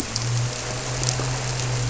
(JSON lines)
{"label": "anthrophony, boat engine", "recorder": "SoundTrap 300"}